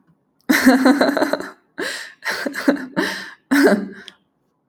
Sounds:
Laughter